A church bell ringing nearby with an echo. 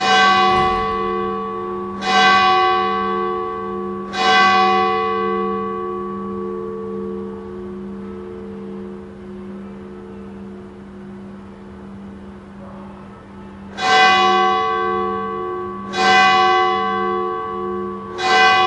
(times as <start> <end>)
0.0 1.0, 2.0 6.0, 13.7 18.7